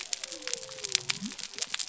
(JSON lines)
{"label": "biophony", "recorder": "SoundTrap 300"}